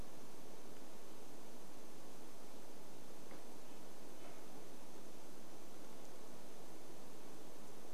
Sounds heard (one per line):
Red-breasted Nuthatch song